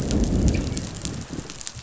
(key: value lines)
label: biophony, growl
recorder: SoundTrap 500